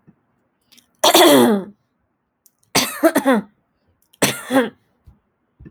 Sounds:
Throat clearing